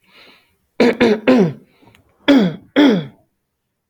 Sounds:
Throat clearing